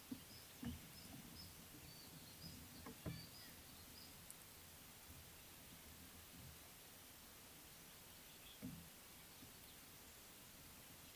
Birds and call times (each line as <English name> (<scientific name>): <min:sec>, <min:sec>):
Little Bee-eater (Merops pusillus): 0:02.4